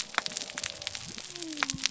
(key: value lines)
label: biophony
recorder: SoundTrap 300